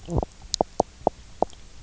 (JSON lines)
{"label": "biophony, knock croak", "recorder": "SoundTrap 300"}